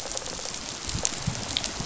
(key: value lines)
label: biophony, rattle response
recorder: SoundTrap 500